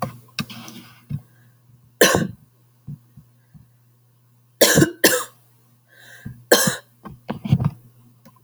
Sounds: Cough